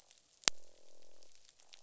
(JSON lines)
{"label": "biophony, croak", "recorder": "SoundTrap 500"}